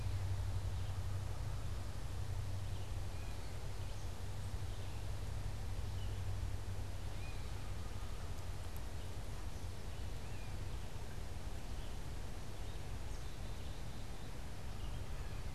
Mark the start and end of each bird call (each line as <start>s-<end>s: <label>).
0.0s-15.5s: Black-capped Chickadee (Poecile atricapillus)
0.0s-15.5s: Red-eyed Vireo (Vireo olivaceus)
7.0s-7.7s: Gray Catbird (Dumetella carolinensis)
10.1s-10.6s: Gray Catbird (Dumetella carolinensis)